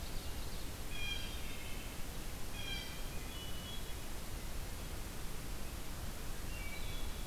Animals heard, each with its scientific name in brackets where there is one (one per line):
Wood Thrush (Hylocichla mustelina)
Hermit Thrush (Catharus guttatus)
Blue Jay (Cyanocitta cristata)
Ovenbird (Seiurus aurocapilla)